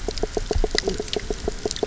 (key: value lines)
label: biophony, knock croak
recorder: SoundTrap 300